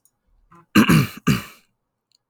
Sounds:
Throat clearing